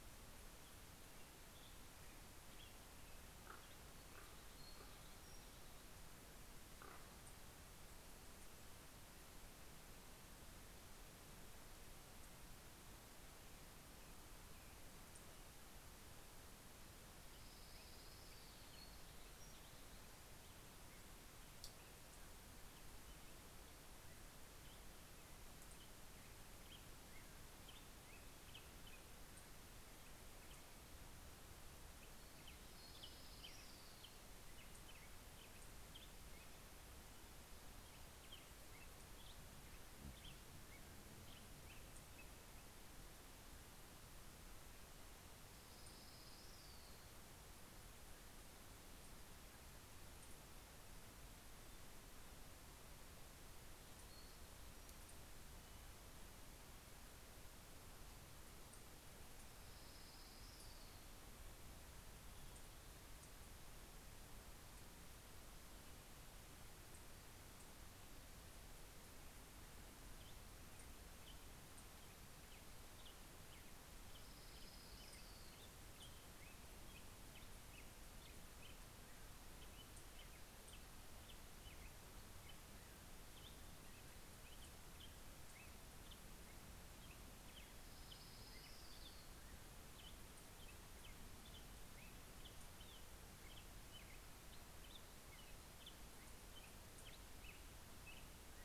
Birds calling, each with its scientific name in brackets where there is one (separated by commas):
Orange-crowned Warbler (Leiothlypis celata), Pacific-slope Flycatcher (Empidonax difficilis), Common Raven (Corvus corax), American Robin (Turdus migratorius), Black-headed Grosbeak (Pheucticus melanocephalus)